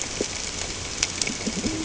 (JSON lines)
{"label": "ambient", "recorder": "HydroMoth"}